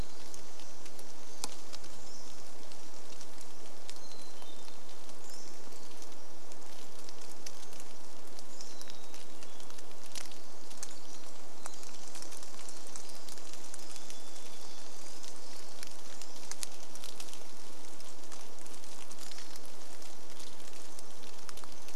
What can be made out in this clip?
Hermit Thrush song, rain, Pacific-slope Flycatcher song, Pacific Wren song, Varied Thrush song